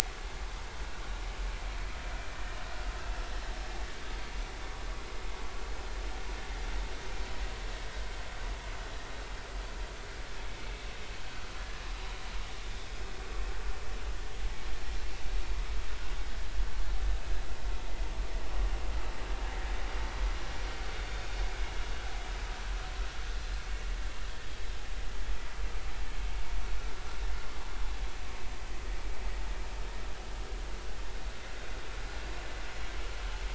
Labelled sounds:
2.3	2.6	vessel noise, 1.8 to 1.9 kHz

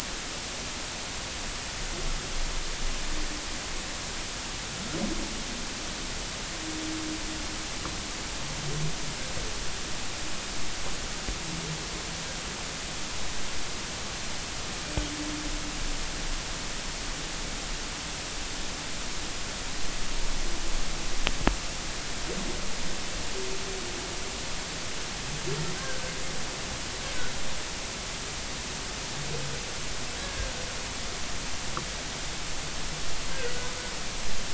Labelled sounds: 25.7	26.0	humpback whale, 1.5 to 1.7 kHz
30.2	30.5	humpback whale, 1.6 to 1.8 kHz
33.3	33.5	humpback whale, 1.4 to 1.7 kHz

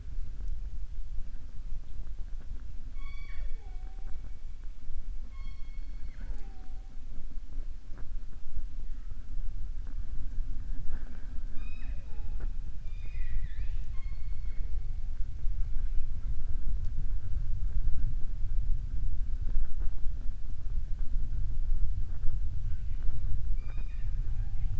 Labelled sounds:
2.9	4.2	killer whale, southern resident, 0.39 to 5.7 kHz
12.7	14.7	killer whale, southern resident, 1.1 to 5.0 kHz

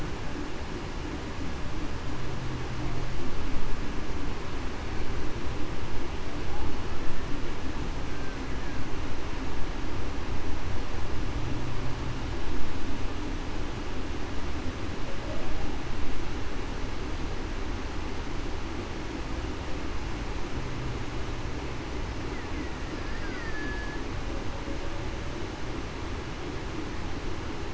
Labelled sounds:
23.2	23.8	killer whale, Bigg's (transient), 4.7 to 4.9 kHz

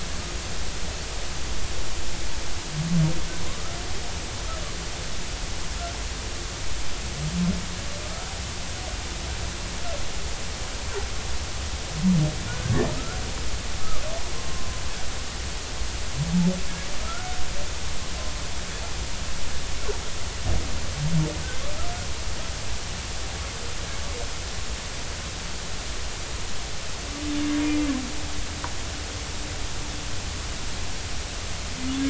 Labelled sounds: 3.5	3.8	humpback whale, 0.99 to 1.4 kHz
12.5	13.2	humpback whale, 1.2 to 1.6 kHz
14.5	14.8	humpback whale, 0.99 to 1.1 kHz
17.0	17.4	humpback whale, 1.2 to 1.5 kHz
27.6	27.9	humpback whale, 2.0 to 2.2 kHz

